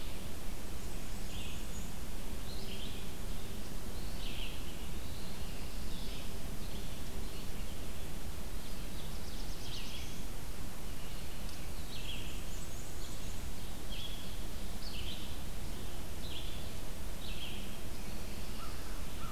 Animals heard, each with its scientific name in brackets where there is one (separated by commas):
Black-and-white Warbler (Mniotilta varia), Black-throated Blue Warbler (Setophaga caerulescens), American Crow (Corvus brachyrhynchos), Red-eyed Vireo (Vireo olivaceus), Eastern Wood-Pewee (Contopus virens)